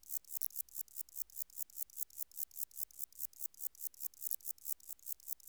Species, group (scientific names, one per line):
Metrioptera saussuriana
Orthoptera